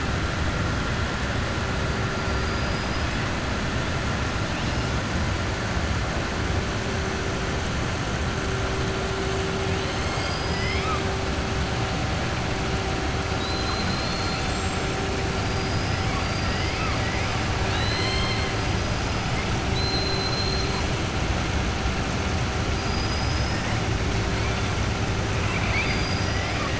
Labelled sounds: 9.7	11.0	killer whale, southern resident, 1.2 to 7.6 kHz
13.3	14.9	killer whale, southern resident, 3.3 to 8.0 kHz
16.1	16.8	killer whale, southern resident, 4.6 to 5.2 kHz
17.6	18.5	killer whale, southern resident, 1.1 to 5.1 kHz
19.6	20.7	killer whale, southern resident, 3.3 to 4.2 kHz
25.4	26.7	killer whale, southern resident, 0.54 to 5.7 kHz

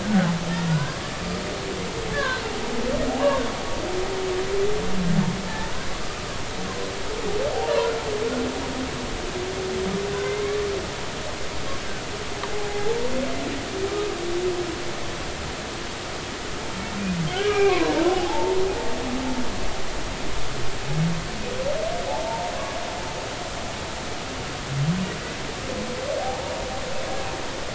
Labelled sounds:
0.0	1.0	humpback whale, 1.3 to 1.7 kHz
2.1	2.4	humpback whale, 1.5 to 1.8 kHz
3.1	3.4	humpback whale, 0.80 to 1.2 kHz
10.1	10.4	humpback whale, 1.4 to 1.6 kHz
12.5	13.1	humpback whale, 0.80 to 0.96 kHz
17.3	18.6	humpback whale, 0.80 to 2.5 kHz
22.1	22.5	humpback whale, 0.80 to 0.96 kHz
26.2	26.6	humpback whale, 0.80 to 0.99 kHz

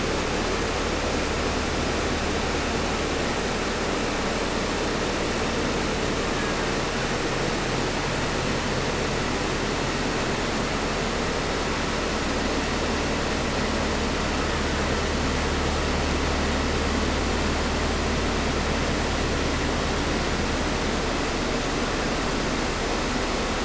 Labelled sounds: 6.0	6.8	killer whale, Bigg's (transient), 0.83 to 2.4 kHz

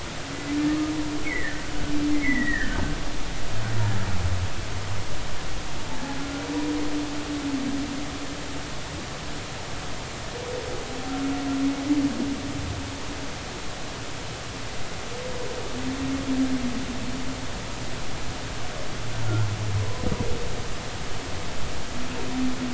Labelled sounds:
0.7	1.7	humpback whale, 1.2 to 2.4 kHz
2.1	2.8	humpback whale, 1.4 to 2.3 kHz
19.8	20.1	humpback whale, 0.93 to 1.1 kHz

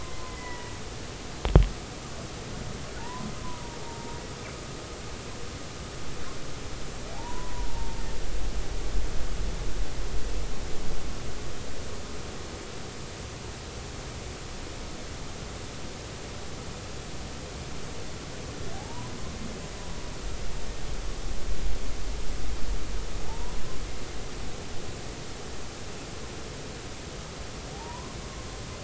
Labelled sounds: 0.3	0.7	humpback whale, 0.93 to 2.1 kHz
3.0	4.2	humpback whale, 0.83 to 1.1 kHz
7.1	7.7	humpback whale, 0.80 to 1.1 kHz
18.7	19.1	humpback whale, 0.80 to 1.1 kHz
23.3	23.5	humpback whale, 0.80 to 1.0 kHz
27.7	28.2	humpback whale, 0.80 to 1.2 kHz

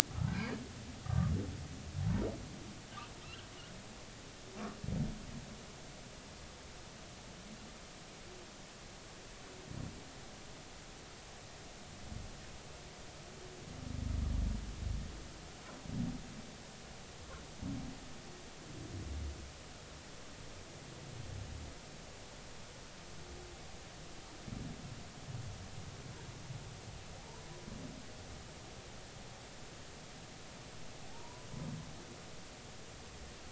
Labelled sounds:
0.3	0.6	humpback whale, 1.5 to 1.7 kHz
1.0	1.3	humpback whale, 1.1 to 1.3 kHz
31.0	31.5	humpback whale, 0.80 to 1.0 kHz

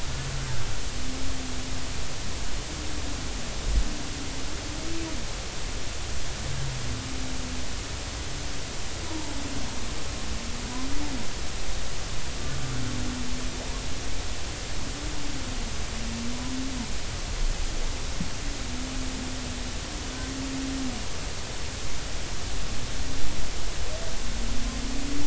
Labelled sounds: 9.0	9.3	humpback whale, 0.86 to 1.0 kHz

